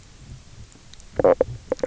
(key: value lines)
label: biophony, knock croak
recorder: SoundTrap 300